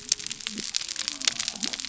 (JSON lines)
{"label": "biophony", "recorder": "SoundTrap 300"}